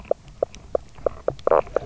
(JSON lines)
{"label": "biophony, knock croak", "recorder": "SoundTrap 300"}